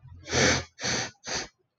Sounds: Sniff